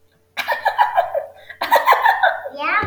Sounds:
Laughter